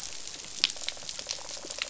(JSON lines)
{"label": "biophony, rattle response", "recorder": "SoundTrap 500"}